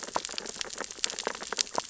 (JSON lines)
{"label": "biophony, sea urchins (Echinidae)", "recorder": "SoundTrap 600 or HydroMoth"}